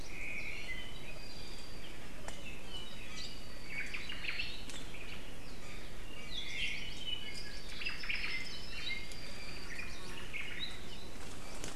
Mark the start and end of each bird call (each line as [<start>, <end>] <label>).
[0.00, 0.80] Omao (Myadestes obscurus)
[0.60, 2.00] Apapane (Himatione sanguinea)
[3.70, 4.60] Omao (Myadestes obscurus)
[6.10, 7.10] Hawaii Creeper (Loxops mana)
[6.30, 7.00] Omao (Myadestes obscurus)
[6.80, 9.80] Apapane (Himatione sanguinea)
[7.60, 8.40] Omao (Myadestes obscurus)
[9.60, 10.20] Hawaii Creeper (Loxops mana)
[10.10, 10.80] Omao (Myadestes obscurus)